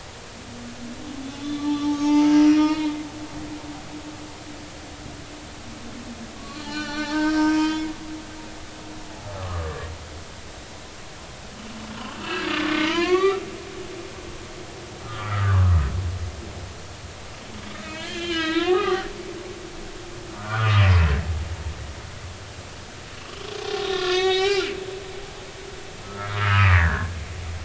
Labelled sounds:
1.2	3.1	humpback whale, 0.83 to 6.5 kHz
6.4	7.8	humpback whale, 0.83 to 6.0 kHz
8.2	9.8	humpback whale, 0.99 to 1.4 kHz
12.2	13.4	humpback whale, 0.90 to 4.4 kHz
15.0	15.8	humpback whale, 0.96 to 1.8 kHz
17.8	19.5	humpback whale, 0.80 to 6.7 kHz
20.3	20.8	humpback whale, 1.1 to 1.6 kHz
23.6	24.7	humpback whale, 0.80 to 6.5 kHz
26.0	27.1	humpback whale, 1.2 to 2.9 kHz

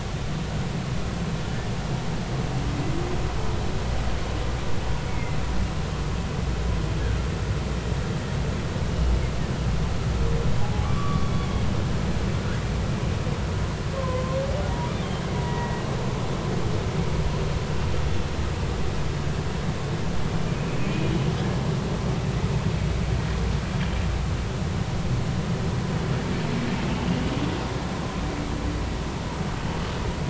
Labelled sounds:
5.1	5.4	humpback whale, 2.0 to 2.3 kHz
10.6	11.5	humpback whale, 0.80 to 3.6 kHz
13.9	14.4	humpback whale, 0.96 to 1.1 kHz
15.4	15.8	humpback whale, 0.90 to 2.0 kHz

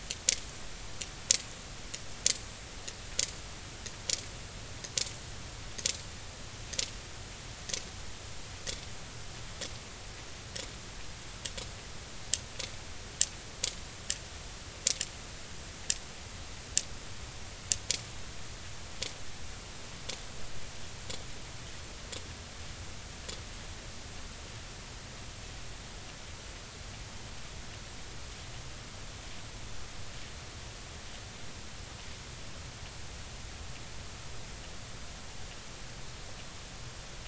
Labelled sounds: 8.6	8.9	sperm whale, 3.3 to 3.5 kHz

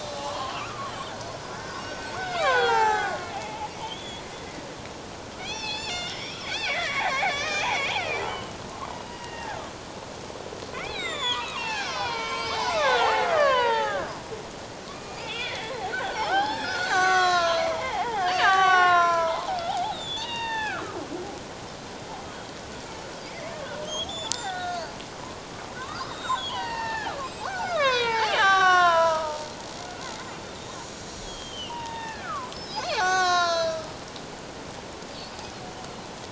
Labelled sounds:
0.3	0.9	killer whale, Bigg's (transient), 0.97 to 4.4 kHz
1.5	4.2	killer whale, Bigg's (transient), 0.78 to 5.7 kHz
5.4	8.6	killer whale, Bigg's (transient), 0.78 to 7.2 kHz
8.9	9.7	killer whale, Bigg's (transient), 1.1 to 4.9 kHz
10.7	14.0	killer whale, Bigg's (transient), 0.78 to 7.9 kHz
14.9	21.0	killer whale, Bigg's (transient), 0.78 to 7.5 kHz
23.8	24.9	killer whale, Bigg's (transient), 0.78 to 6.5 kHz
25.8	27.2	killer whale, Bigg's (transient), 0.78 to 7.6 kHz
27.4	29.5	killer whale, Bigg's (transient), 0.78 to 6.5 kHz
31.2	34.0	killer whale, Bigg's (transient), 0.78 to 7.5 kHz

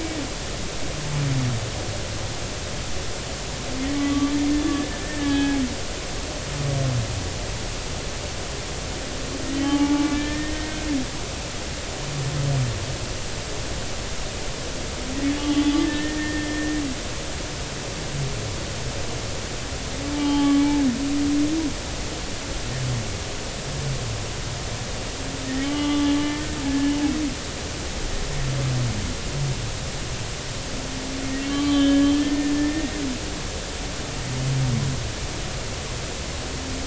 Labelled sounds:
3.9	4.3	humpback whale, 1.1 to 1.2 kHz
4.7	5.6	humpback whale, 0.80 to 3.4 kHz
9.5	10.9	humpback whale, 0.80 to 3.2 kHz
15.4	16.8	humpback whale, 1.7 to 3.5 kHz
20.1	20.7	humpback whale, 0.80 to 3.2 kHz
25.6	26.9	humpback whale, 0.80 to 3.3 kHz
31.4	32.9	humpback whale, 1.1 to 3.7 kHz

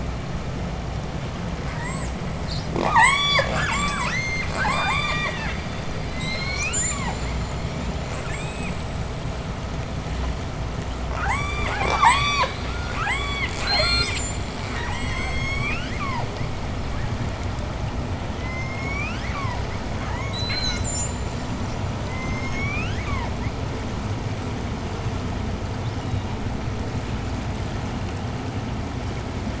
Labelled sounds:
1.5	5.7	killer whale, southern resident, J pod, 0.09 to 8.0 kHz
6.0	7.2	killer whale, southern resident, J pod, call S01, 0.64 to 8.0 kHz
6.5	9.1	killer whale, southern resident, J pod, 1.5 to 8.0 kHz
11.1	16.4	killer whale, southern resident, J pod, 0.31 to 8.0 kHz
18.1	20.3	killer whale, southern resident, J pod, call S01, 0.41 to 8.0 kHz
20.3	21.5	killer whale, southern resident, J pod, 0.79 to 8.0 kHz
21.9	23.7	killer whale, southern resident, J pod, call S01, 0.57 to 8.0 kHz
25.7	26.6	killer whale, southern resident, J pod, 2.6 to 6.6 kHz

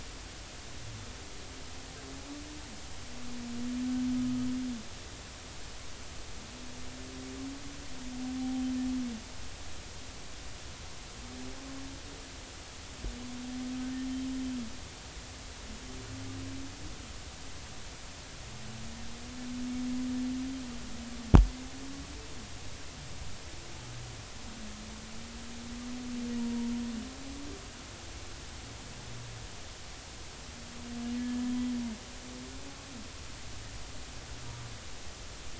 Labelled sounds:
8.4	8.6	humpback whale, 0.80 to 0.83 kHz
31.2	31.4	humpback whale, 1.7 to 1.8 kHz

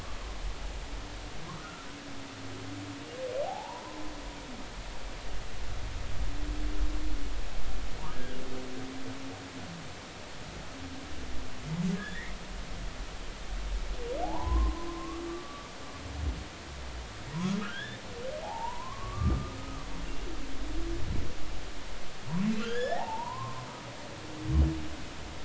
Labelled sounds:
1.5	1.9	humpback whale, 1.2 to 1.5 kHz
3.4	4.0	humpback whale, 0.80 to 1.1 kHz
8.1	8.4	humpback whale, 1.5 to 1.7 kHz
11.9	12.3	humpback whale, 1.6 to 2.2 kHz
14.2	15.7	humpback whale, 0.80 to 1.2 kHz
17.6	18.0	humpback whale, 1.2 to 3.7 kHz
18.4	19.9	humpback whale, 0.80 to 1.3 kHz
22.6	23.7	humpback whale, 0.80 to 3.5 kHz

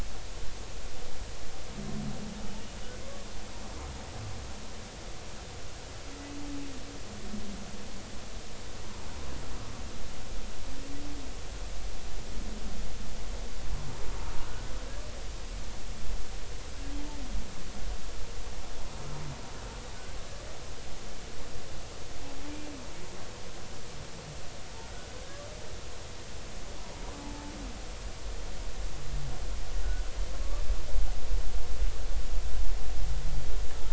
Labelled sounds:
14.4	14.7	humpback whale, 1.4 to 1.6 kHz
27.1	27.5	humpback whale, 0.83 to 0.96 kHz

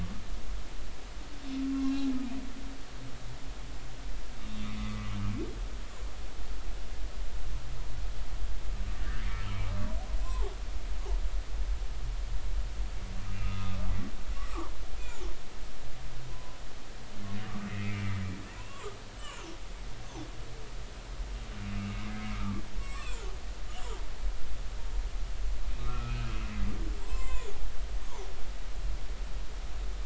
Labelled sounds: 4.9	5.2	humpback whale, 1.1 to 1.2 kHz
9.0	9.3	humpback whale, 1.4 to 1.9 kHz
10.2	10.5	humpback whale, 0.80 to 1.1 kHz
13.4	13.9	humpback whale, 1.1 to 1.3 kHz
14.3	14.7	humpback whale, 0.80 to 1.3 kHz
16.3	16.6	humpback whale, 0.96 to 1.1 kHz
17.7	19.4	humpback whale, 0.93 to 3.1 kHz
21.8	24.0	humpback whale, 0.86 to 7.0 kHz
25.8	26.5	humpback whale, 1.1 to 2.8 kHz
27.0	28.5	humpback whale, 0.90 to 7.4 kHz

